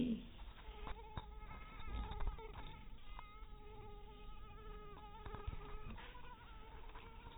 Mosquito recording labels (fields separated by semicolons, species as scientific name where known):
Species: mosquito; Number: one; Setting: cup